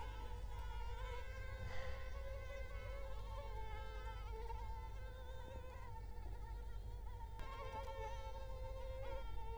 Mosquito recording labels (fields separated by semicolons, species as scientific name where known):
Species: Culex quinquefasciatus; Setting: cup